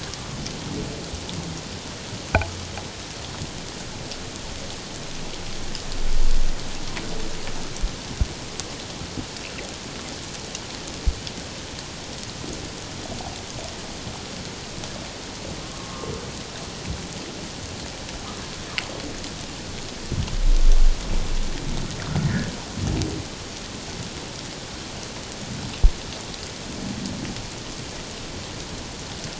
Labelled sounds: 15.6	16.1	humpback whale, 1.0 to 1.2 kHz
22.2	22.5	humpback whale, 1.6 to 2.0 kHz

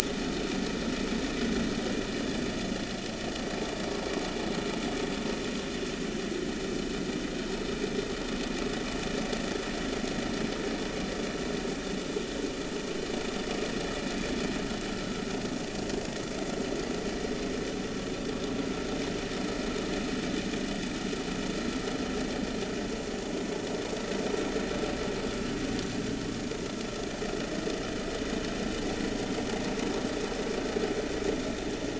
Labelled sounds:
0.0	0.3	vessel noise, 1.7 to 2.0 kHz

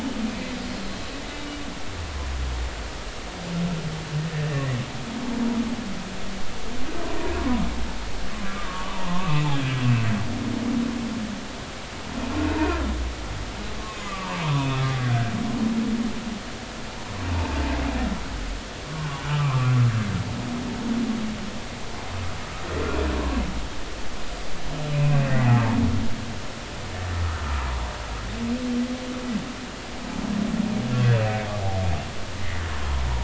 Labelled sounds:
4.5	4.8	humpback whale, 1.7 to 2.0 kHz
7.4	7.6	humpback whale, 0.96 to 1.2 kHz
8.4	9.7	humpback whale, 0.86 to 3.4 kHz
12.6	12.9	humpback whale, 1.6 to 1.9 kHz
13.8	15.3	humpback whale, 0.90 to 3.6 kHz
17.3	17.6	humpback whale, 0.83 to 1.1 kHz
19.3	19.7	humpback whale, 0.99 to 1.4 kHz
24.9	25.8	humpback whale, 0.80 to 2.7 kHz
32.7	33.0	humpback whale, 0.93 to 1.1 kHz

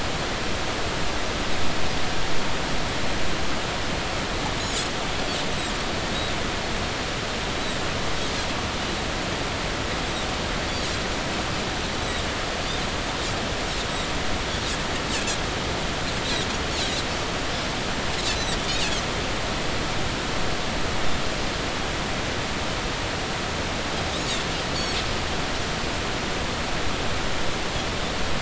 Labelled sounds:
12.0	12.3	Pacific white-sided dolphin, 3.7 to 4.0 kHz
18.6	18.9	Pacific white-sided dolphin, 2.3 to 3.0 kHz

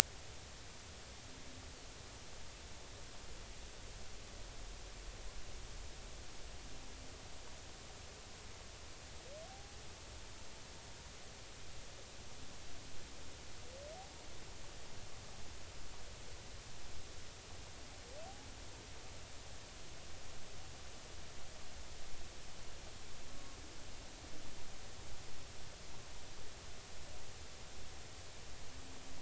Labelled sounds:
23.3	23.6	humpback whale, 1.06 to 1.12 kHz

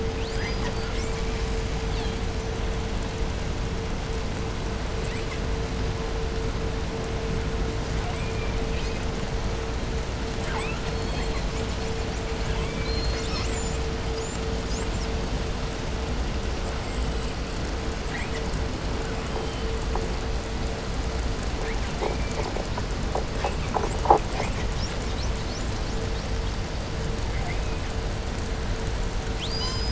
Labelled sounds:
0.0	2.8	killer whale, 0.47 to 8.0 kHz
4.8	5.5	killer whale, 0.63 to 8.0 kHz
7.8	9.3	killer whale, 0.56 to 8.0 kHz
10.3	11.9	killer whale, 0.60 to 8.0 kHz
12.3	15.5	killer whale, 0.69 to 8.0 kHz
16.5	17.4	killer whale, 1.9 to 8.0 kHz
17.9	19.8	killer whale, 0.78 to 8.0 kHz
21.5	22.7	killer whale, 1.4 to 2.7 kHz
23.2	26.6	killer whale, 1.4 to 8.0 kHz
27.1	27.9	killer whale, 1.4 to 3.0 kHz
29.3	29.9	killer whale, southern resident, call S36, 0.36 to 8.0 kHz

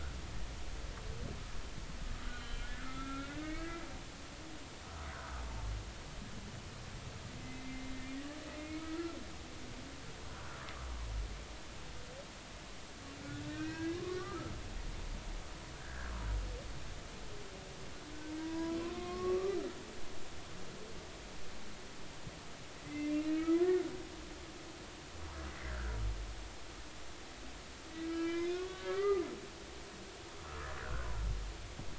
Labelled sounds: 2.3	3.8	humpback whale, 1.2 to 4.2 kHz
7.4	7.9	humpback whale, 2.0 to 2.2 kHz
8.6	9.2	humpback whale, 1.2 to 2.3 kHz
13.2	14.5	humpback whale, 1.0 to 2.7 kHz
15.8	16.1	humpback whale, 1.3 to 1.8 kHz
18.4	19.6	humpback whale, 0.93 to 1.2 kHz
22.8	23.8	humpback whale, 1.2 to 2.6 kHz
25.7	26.0	humpback whale, 1.3 to 1.8 kHz
28.1	29.2	humpback whale, 1.1 to 5.2 kHz
30.8	31.2	humpback whale, 0.90 to 1.9 kHz

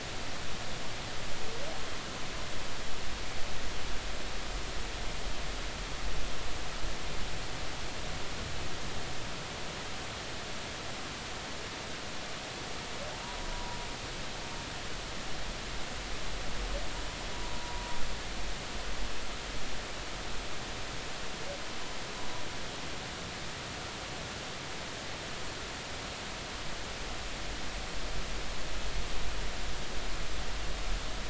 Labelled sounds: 13.2	13.8	humpback whale, 0.90 to 1.1 kHz
18.3	19.0	humpback whale, 0.93 to 1.0 kHz

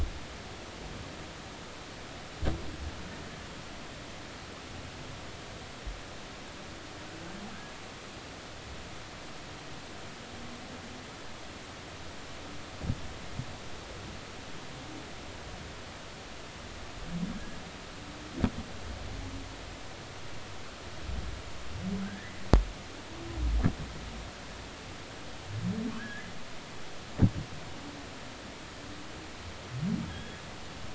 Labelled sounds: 22.0	22.4	humpback whale, 1.5 to 2.1 kHz
26.0	26.3	humpback whale, 1.5 to 1.8 kHz
30.1	30.4	humpback whale, 1.6 to 3.4 kHz

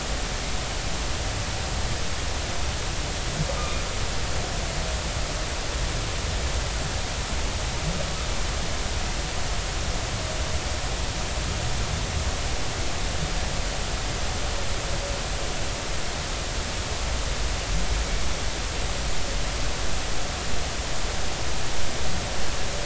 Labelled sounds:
3.6	3.8	humpback whale, 2.4 to 2.5 kHz

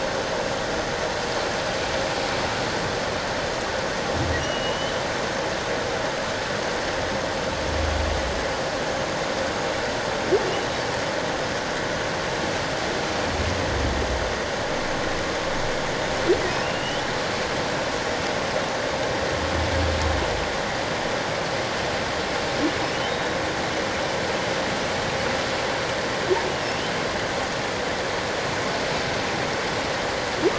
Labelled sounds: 4.4	5.0	humpback whale, 2.7 to 3.1 kHz
10.5	10.7	humpback whale, 2.8 to 3.0 kHz
16.6	17.0	humpback whale, 2.6 to 3.1 kHz
23.0	23.4	humpback whale, 3.7 to 3.9 kHz
26.6	26.9	humpback whale, 2.6 to 3.1 kHz

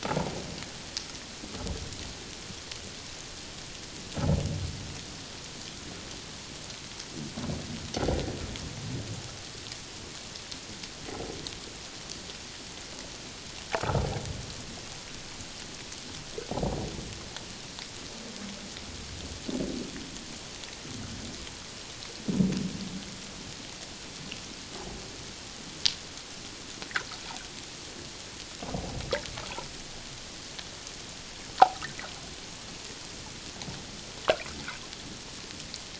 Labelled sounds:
28.6	29.0	humpback whale, 0.78 to 1.0 kHz

